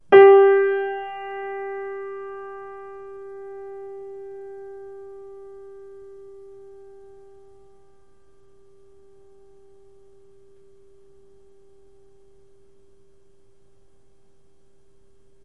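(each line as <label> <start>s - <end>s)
A single piano key plays a note loudly, then the volume steadily decreases. 0.1s - 7.1s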